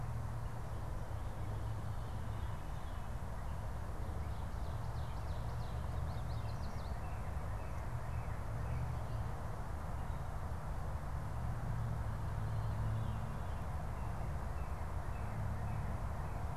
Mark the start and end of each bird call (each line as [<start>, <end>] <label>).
[4.40, 6.10] Ovenbird (Seiurus aurocapilla)
[5.90, 7.10] Yellow Warbler (Setophaga petechia)
[6.60, 9.20] Northern Cardinal (Cardinalis cardinalis)
[13.90, 16.50] Northern Cardinal (Cardinalis cardinalis)